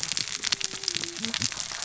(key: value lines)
label: biophony, cascading saw
recorder: SoundTrap 600 or HydroMoth